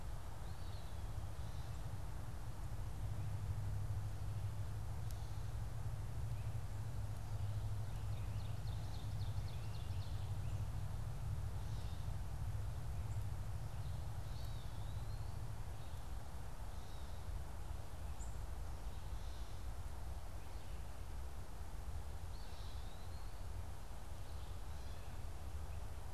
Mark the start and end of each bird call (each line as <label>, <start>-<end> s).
Eastern Wood-Pewee (Contopus virens), 0.2-1.4 s
Ovenbird (Seiurus aurocapilla), 7.8-10.4 s
Eastern Wood-Pewee (Contopus virens), 14.1-15.4 s
unidentified bird, 18.1-18.4 s
Eastern Wood-Pewee (Contopus virens), 22.1-23.4 s